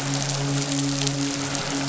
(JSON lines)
{"label": "biophony, midshipman", "recorder": "SoundTrap 500"}